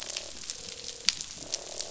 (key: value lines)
label: biophony, croak
recorder: SoundTrap 500